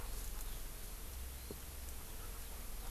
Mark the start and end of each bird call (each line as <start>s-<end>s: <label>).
0.0s-2.9s: Eurasian Skylark (Alauda arvensis)